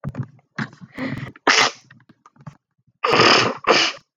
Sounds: Sneeze